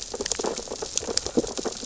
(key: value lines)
label: biophony, sea urchins (Echinidae)
recorder: SoundTrap 600 or HydroMoth